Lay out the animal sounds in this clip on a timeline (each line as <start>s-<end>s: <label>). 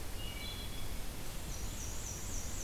0.0s-0.8s: Wood Thrush (Hylocichla mustelina)
1.4s-2.6s: Black-and-white Warbler (Mniotilta varia)